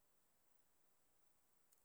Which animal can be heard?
Platycleis albopunctata, an orthopteran